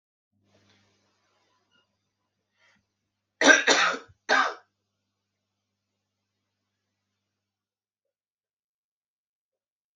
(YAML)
expert_labels:
- quality: good
  cough_type: dry
  dyspnea: false
  wheezing: false
  stridor: false
  choking: false
  congestion: false
  nothing: true
  diagnosis: upper respiratory tract infection
  severity: mild
age: 45
gender: male
respiratory_condition: false
fever_muscle_pain: false
status: healthy